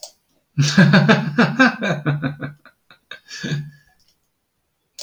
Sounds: Laughter